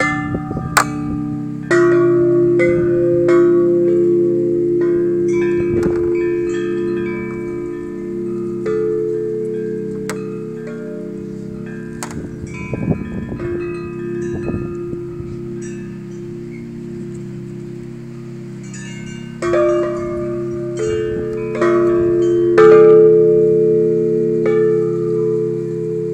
Is there a piano playing?
no